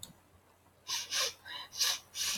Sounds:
Sniff